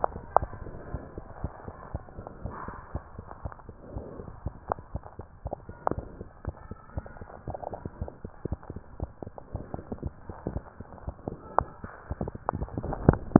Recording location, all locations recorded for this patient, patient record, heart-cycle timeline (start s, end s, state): mitral valve (MV)
aortic valve (AV)+pulmonary valve (PV)+tricuspid valve (TV)+mitral valve (MV)
#Age: Child
#Sex: Male
#Height: 128.0 cm
#Weight: 37.1 kg
#Pregnancy status: False
#Murmur: Absent
#Murmur locations: nan
#Most audible location: nan
#Systolic murmur timing: nan
#Systolic murmur shape: nan
#Systolic murmur grading: nan
#Systolic murmur pitch: nan
#Systolic murmur quality: nan
#Diastolic murmur timing: nan
#Diastolic murmur shape: nan
#Diastolic murmur grading: nan
#Diastolic murmur pitch: nan
#Diastolic murmur quality: nan
#Outcome: Abnormal
#Campaign: 2015 screening campaign
0.00	0.38	unannotated
0.38	0.52	S1
0.52	0.60	systole
0.60	0.72	S2
0.72	0.88	diastole
0.88	1.02	S1
1.02	1.16	systole
1.16	1.26	S2
1.26	1.42	diastole
1.42	1.52	S1
1.52	1.66	systole
1.66	1.74	S2
1.74	1.90	diastole
1.90	2.04	S1
2.04	2.16	systole
2.16	2.26	S2
2.26	2.42	diastole
2.42	2.56	S1
2.56	2.68	systole
2.68	2.78	S2
2.78	2.94	diastole
2.94	3.04	S1
3.04	3.18	systole
3.18	3.28	S2
3.28	3.44	diastole
3.44	3.54	S1
3.54	3.68	systole
3.68	3.76	S2
3.76	3.92	diastole
3.92	4.06	S1
4.06	4.18	systole
4.18	4.28	S2
4.28	4.44	diastole
4.44	4.56	S1
4.56	4.68	systole
4.68	4.78	S2
4.78	4.94	diastole
4.94	5.04	S1
5.04	5.18	systole
5.18	5.28	S2
5.28	5.44	diastole
5.44	5.54	S1
5.54	5.67	systole
5.67	5.76	S2
5.76	5.90	diastole
5.90	6.06	S1
6.06	6.18	systole
6.18	6.28	S2
6.28	6.44	diastole
6.44	6.58	S1
6.58	6.70	systole
6.70	6.76	S2
6.76	6.96	diastole
6.96	7.06	S1
7.06	7.20	systole
7.20	7.28	S2
7.28	7.46	diastole
7.46	7.58	S1
7.58	7.72	systole
7.72	7.82	S2
7.82	7.98	diastole
7.98	8.12	S1
8.12	8.24	systole
8.24	8.30	S2
8.30	8.44	diastole
8.44	8.58	S1
8.58	8.70	systole
8.70	8.82	S2
8.82	8.98	diastole
8.98	9.12	S1
9.12	9.24	systole
9.24	9.36	S2
9.36	9.53	diastole
9.53	9.61	S1
9.61	9.73	systole
9.73	9.79	S2
9.79	10.02	diastole
10.02	10.16	S1
10.16	10.28	systole
10.28	10.36	S2
10.36	10.54	diastole
10.54	13.39	unannotated